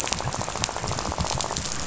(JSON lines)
{"label": "biophony, rattle", "recorder": "SoundTrap 500"}